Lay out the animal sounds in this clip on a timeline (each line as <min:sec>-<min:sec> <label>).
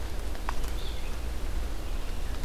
0:00.5-0:02.4 Red-eyed Vireo (Vireo olivaceus)